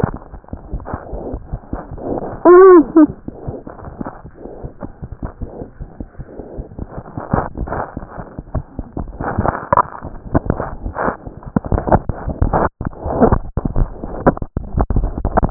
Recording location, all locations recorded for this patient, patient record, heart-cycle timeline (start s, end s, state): aortic valve (AV)
aortic valve (AV)+aortic valve (AV)+mitral valve (MV)
#Age: Child
#Sex: Female
#Height: 77.0 cm
#Weight: 10.5 kg
#Pregnancy status: False
#Murmur: Absent
#Murmur locations: nan
#Most audible location: nan
#Systolic murmur timing: nan
#Systolic murmur shape: nan
#Systolic murmur grading: nan
#Systolic murmur pitch: nan
#Systolic murmur quality: nan
#Diastolic murmur timing: nan
#Diastolic murmur shape: nan
#Diastolic murmur grading: nan
#Diastolic murmur pitch: nan
#Diastolic murmur quality: nan
#Outcome: Normal
#Campaign: 2014 screening campaign
0.00	4.63	unannotated
4.63	4.68	S1
4.68	4.81	systole
4.81	4.89	S2
4.89	5.00	diastole
5.00	5.07	S1
5.07	5.23	systole
5.23	5.29	S2
5.29	5.41	diastole
5.41	5.48	S1
5.48	5.61	systole
5.61	5.68	S2
5.68	5.81	diastole
5.81	5.88	S1
5.88	5.99	systole
5.99	6.06	S2
6.06	6.18	diastole
6.18	6.25	S1
6.25	6.39	systole
6.39	6.44	S2
6.44	6.59	diastole
6.59	6.66	S1
6.66	6.80	systole
6.80	6.87	S2
6.87	6.98	diastole
6.98	7.04	S1
7.04	7.17	systole
7.17	7.24	S2
7.24	7.34	diastole
7.34	15.50	unannotated